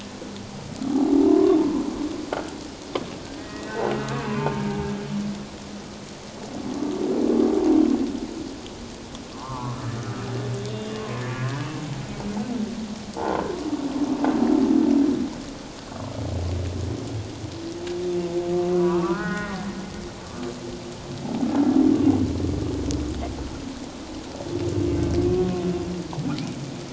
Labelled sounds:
1.3	1.6	humpback whale, 0.88 to 1.2 kHz
3.3	4.9	humpback whale, 0.78 to 2.7 kHz
9.3	10.1	humpback whale, 0.81 to 1.8 kHz
18.7	19.6	humpback whale, 0.88 to 1.9 kHz

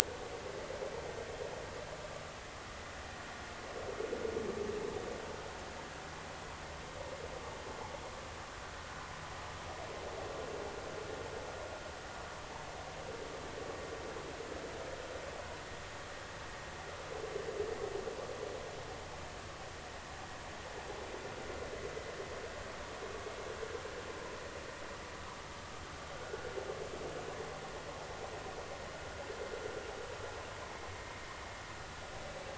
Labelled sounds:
26.2	26.5	vessel noise, 1.4 to 1.6 kHz

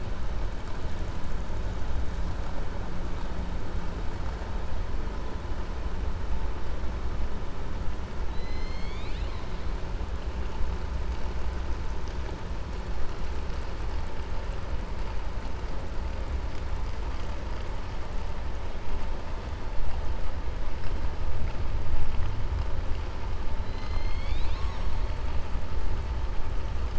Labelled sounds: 8.2	9.5	killer whale, 2.0 to 7.0 kHz

